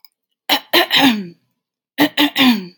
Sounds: Throat clearing